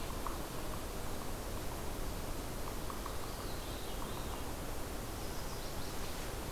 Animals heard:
Veery (Catharus fuscescens)
Chestnut-sided Warbler (Setophaga pensylvanica)

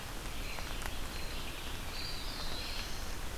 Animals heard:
Hairy Woodpecker (Dryobates villosus)
Eastern Wood-Pewee (Contopus virens)
Red-eyed Vireo (Vireo olivaceus)

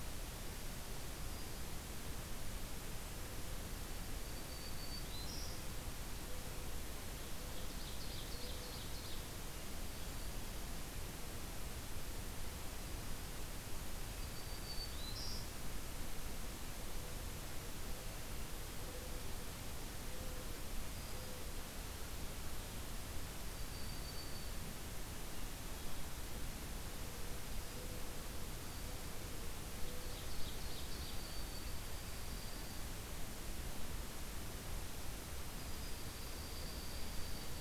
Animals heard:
Black-throated Green Warbler (Setophaga virens)
Ovenbird (Seiurus aurocapilla)
Dark-eyed Junco (Junco hyemalis)
Mourning Dove (Zenaida macroura)

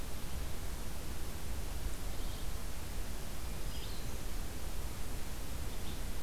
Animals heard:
Red-eyed Vireo (Vireo olivaceus)

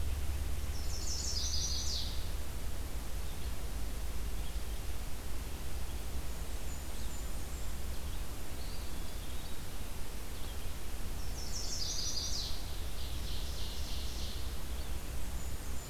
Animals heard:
Red-eyed Vireo (Vireo olivaceus)
Chestnut-sided Warbler (Setophaga pensylvanica)
Ovenbird (Seiurus aurocapilla)
Eastern Wood-Pewee (Contopus virens)
Blackburnian Warbler (Setophaga fusca)

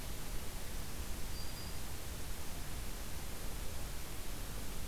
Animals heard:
Black-throated Green Warbler (Setophaga virens)

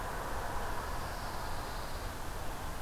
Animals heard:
Pine Warbler (Setophaga pinus)

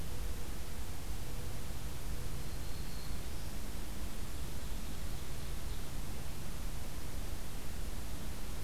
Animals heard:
Black-throated Green Warbler (Setophaga virens)
Ovenbird (Seiurus aurocapilla)

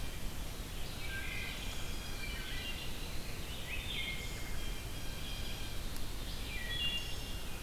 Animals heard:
Red-eyed Vireo (Vireo olivaceus)
Wood Thrush (Hylocichla mustelina)
Blue Jay (Cyanocitta cristata)

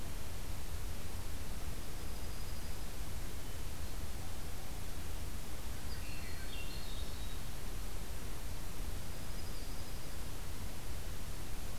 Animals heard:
Broad-winged Hawk (Buteo platypterus)
Swainson's Thrush (Catharus ustulatus)
Dark-eyed Junco (Junco hyemalis)

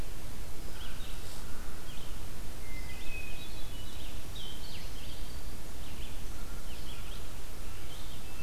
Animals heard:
American Crow (Corvus brachyrhynchos)
Red-eyed Vireo (Vireo olivaceus)
Hermit Thrush (Catharus guttatus)

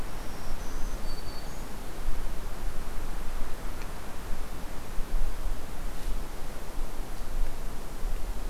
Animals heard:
Black-throated Green Warbler (Setophaga virens)

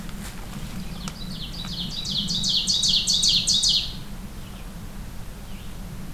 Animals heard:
Red-eyed Vireo (Vireo olivaceus)
Ovenbird (Seiurus aurocapilla)

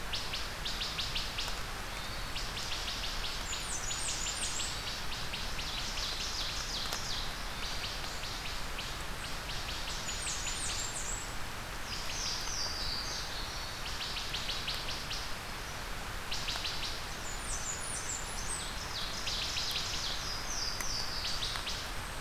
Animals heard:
Blackburnian Warbler (Setophaga fusca)
Wood Thrush (Hylocichla mustelina)
Louisiana Waterthrush (Parkesia motacilla)
Ovenbird (Seiurus aurocapilla)
Hermit Thrush (Catharus guttatus)

